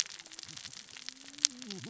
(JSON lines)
{"label": "biophony, cascading saw", "recorder": "SoundTrap 600 or HydroMoth"}